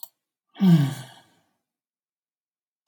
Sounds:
Sigh